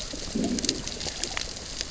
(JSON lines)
{"label": "biophony, growl", "recorder": "SoundTrap 600 or HydroMoth"}